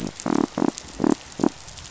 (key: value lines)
label: biophony
recorder: SoundTrap 500